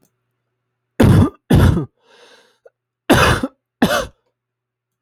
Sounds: Cough